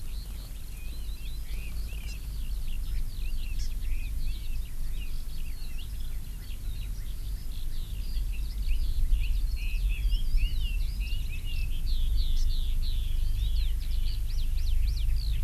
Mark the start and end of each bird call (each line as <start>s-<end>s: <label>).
0.0s-15.4s: Eurasian Skylark (Alauda arvensis)
0.7s-4.1s: Red-billed Leiothrix (Leiothrix lutea)
2.1s-2.2s: Hawaii Amakihi (Chlorodrepanis virens)
3.6s-3.7s: Hawaii Amakihi (Chlorodrepanis virens)
9.6s-11.7s: Red-billed Leiothrix (Leiothrix lutea)
12.4s-12.5s: Hawaii Amakihi (Chlorodrepanis virens)